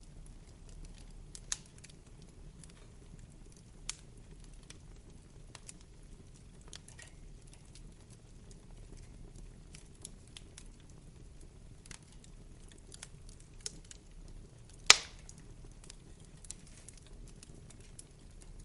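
A fire crackles continuously and silently. 0:00.0 - 0:18.6
A loud popping sound of fire. 0:14.7 - 0:15.1

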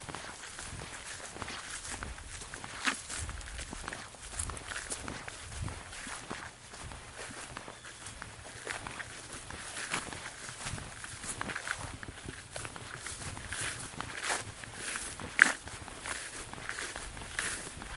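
Footsteps on grass. 0:00.0 - 0:18.0

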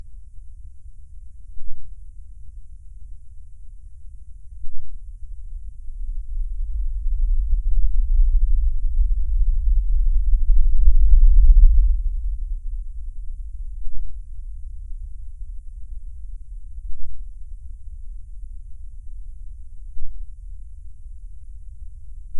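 Persistent quiet deep rumbling. 0:00.0 - 0:22.4
A quiet, short ringing sound. 0:01.5 - 0:01.9
A quiet, short ringing sound. 0:04.5 - 0:05.0
Low rumbling gradually becomes louder. 0:05.3 - 0:12.6
A quiet, short ringing sound. 0:13.7 - 0:14.3
A quiet, short ringing sound. 0:16.8 - 0:17.3
A quiet, short ringing sound. 0:19.8 - 0:20.3

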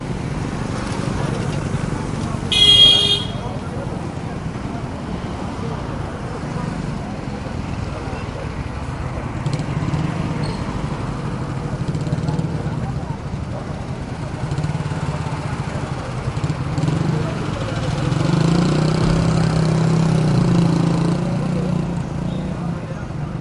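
A car horn honks. 0:00.9 - 0:04.8
A motorcycle drives away. 0:16.2 - 0:23.4

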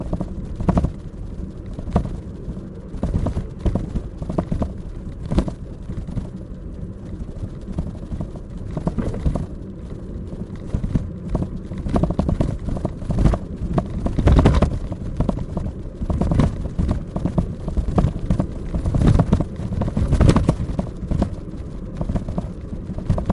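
A muffled crunching sound repeats rhythmically. 0:00.0 - 0:23.3

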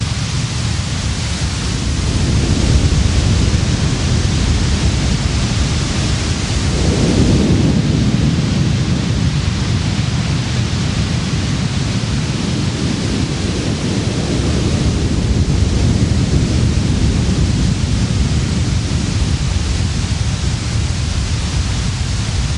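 A continuous sound of wind blowing outdoors. 0:00.0 - 0:22.6

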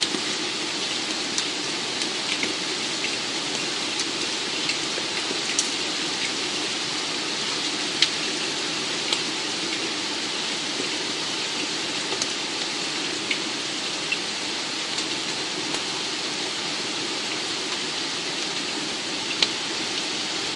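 Steady rain pattering, creating a calm, natural rhythm as droplets fall and splash gently. 0:00.0 - 0:20.6

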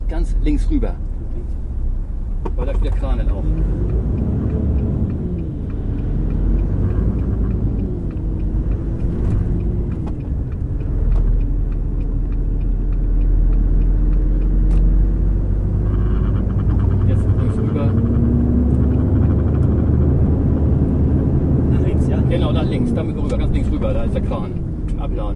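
People are having a muffled conversation in the background. 0:00.0 - 0:03.8
Turn signal clicking continuously. 0:03.1 - 0:15.1
A truck engine runs steadily. 0:03.1 - 0:25.4
Quiet background noise. 0:09.7 - 0:11.9
People are having a muffled conversation in the background. 0:16.9 - 0:18.6
A turn signal is working quietly. 0:18.9 - 0:20.3
People are having a muffled conversation in the background. 0:21.9 - 0:25.4
A turn signal is working quietly. 0:23.5 - 0:25.4

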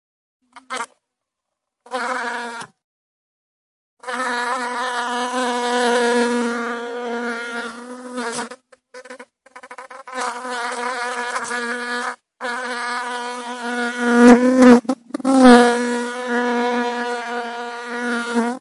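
A bee is buzzing. 0:00.5 - 0:01.0
A bee is buzzing and lands. 0:01.8 - 0:02.8
An insect is buzzing with short breaks as it flies around and lands. 0:04.0 - 0:18.6

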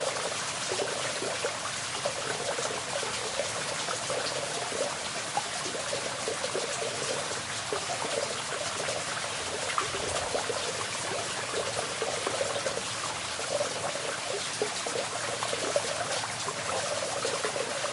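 A stream bubbling softly with occasional splashes and a faint waterfall in the background. 0:00.0 - 0:17.9

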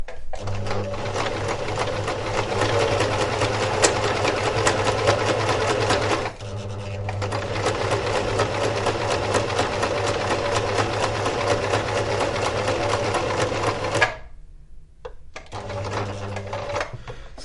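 A sewing machine working loudly. 0:00.0 - 0:17.4

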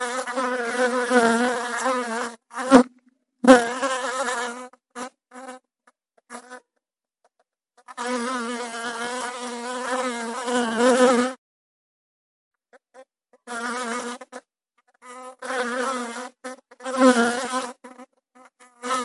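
An insect is flying nearby, producing an uncomfortable buzzing sound. 0:00.0 - 0:03.0
An insect is flying nearby, moving away and fading. 0:03.3 - 0:07.0
An insect is flying nearby and approaching. 0:07.8 - 0:11.6
An insect is flying nearby and approaching. 0:12.6 - 0:19.0

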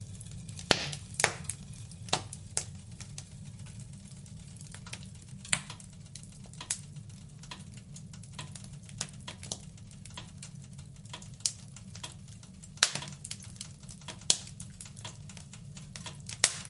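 Crackling of burning wood in a fireplace. 0:00.0 - 0:16.7

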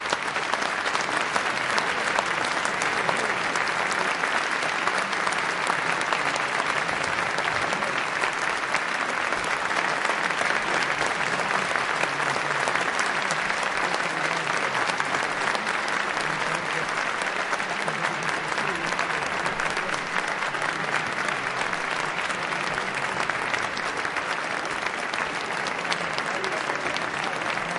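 Loud, continuous applause from a crowd. 0:00.0 - 0:27.8
People murmuring softly. 0:00.0 - 0:27.8

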